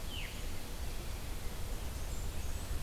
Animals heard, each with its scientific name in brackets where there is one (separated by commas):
Blackburnian Warbler (Setophaga fusca), Veery (Catharus fuscescens)